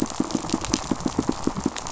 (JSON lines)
{"label": "biophony, pulse", "recorder": "SoundTrap 500"}